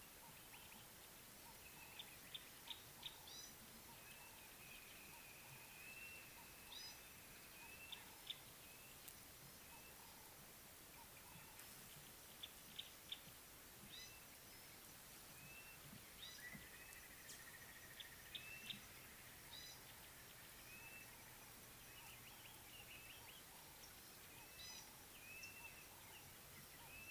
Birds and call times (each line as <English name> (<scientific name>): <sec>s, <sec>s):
Gray-backed Camaroptera (Camaroptera brevicaudata): 3.4s, 12.7s, 19.7s